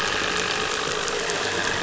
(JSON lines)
{"label": "anthrophony, boat engine", "recorder": "SoundTrap 500"}